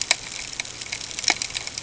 {"label": "ambient", "recorder": "HydroMoth"}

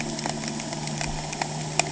{"label": "anthrophony, boat engine", "recorder": "HydroMoth"}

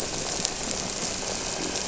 {"label": "anthrophony, boat engine", "recorder": "SoundTrap 300"}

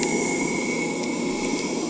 {"label": "anthrophony, boat engine", "recorder": "HydroMoth"}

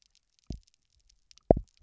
{"label": "biophony, double pulse", "recorder": "SoundTrap 300"}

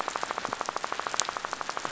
{"label": "biophony, rattle", "recorder": "SoundTrap 500"}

